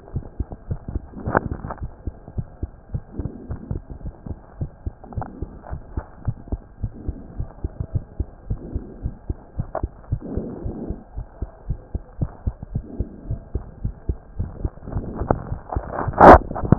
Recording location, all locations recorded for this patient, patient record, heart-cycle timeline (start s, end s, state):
mitral valve (MV)
aortic valve (AV)+pulmonary valve (PV)+tricuspid valve (TV)+mitral valve (MV)
#Age: Child
#Sex: Male
#Height: 129.0 cm
#Weight: 23.6 kg
#Pregnancy status: False
#Murmur: Absent
#Murmur locations: nan
#Most audible location: nan
#Systolic murmur timing: nan
#Systolic murmur shape: nan
#Systolic murmur grading: nan
#Systolic murmur pitch: nan
#Systolic murmur quality: nan
#Diastolic murmur timing: nan
#Diastolic murmur shape: nan
#Diastolic murmur grading: nan
#Diastolic murmur pitch: nan
#Diastolic murmur quality: nan
#Outcome: Normal
#Campaign: 2015 screening campaign
0.00	4.01	unannotated
4.01	4.14	S1
4.14	4.26	systole
4.26	4.38	S2
4.38	4.58	diastole
4.58	4.70	S1
4.70	4.82	systole
4.82	4.96	S2
4.96	5.16	diastole
5.16	5.28	S1
5.28	5.41	systole
5.41	5.50	S2
5.50	5.70	diastole
5.70	5.82	S1
5.82	5.94	systole
5.94	6.04	S2
6.04	6.26	diastole
6.26	6.36	S1
6.36	6.48	systole
6.48	6.60	S2
6.60	6.82	diastole
6.82	6.92	S1
6.92	7.06	systole
7.06	7.16	S2
7.16	7.36	diastole
7.36	7.48	S1
7.48	7.60	systole
7.60	7.74	S2
7.74	7.94	diastole
7.94	8.04	S1
8.04	8.16	systole
8.16	8.30	S2
8.30	8.48	diastole
8.48	8.62	S1
8.62	8.74	systole
8.74	8.86	S2
8.86	9.02	diastole
9.02	9.16	S1
9.16	9.28	systole
9.28	9.40	S2
9.40	9.58	diastole
9.58	9.68	S1
9.68	9.80	systole
9.80	9.94	S2
9.94	10.10	diastole
10.10	10.24	S1
10.24	10.36	systole
10.36	10.46	S2
10.46	10.64	diastole
10.64	10.78	S1
10.78	10.88	systole
10.88	10.98	S2
10.98	11.16	diastole
11.16	11.28	S1
11.28	11.40	systole
11.40	11.50	S2
11.50	11.68	diastole
11.68	11.78	S1
11.78	11.92	systole
11.92	12.06	S2
12.06	12.20	diastole
12.20	12.32	S1
12.32	12.44	systole
12.44	12.58	S2
12.58	12.74	diastole
12.74	12.86	S1
12.86	12.98	systole
12.98	13.12	S2
13.12	13.28	diastole
13.28	13.40	S1
13.40	13.52	systole
13.52	13.64	S2
13.64	13.82	diastole
13.82	13.93	S1
13.93	16.78	unannotated